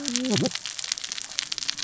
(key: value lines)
label: biophony, cascading saw
recorder: SoundTrap 600 or HydroMoth